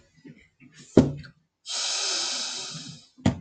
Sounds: Sniff